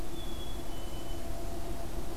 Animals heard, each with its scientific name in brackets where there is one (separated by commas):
Black-capped Chickadee (Poecile atricapillus)